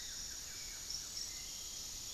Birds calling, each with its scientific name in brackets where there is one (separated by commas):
Piratic Flycatcher (Legatus leucophaius), Hauxwell's Thrush (Turdus hauxwelli), Buff-throated Woodcreeper (Xiphorhynchus guttatus)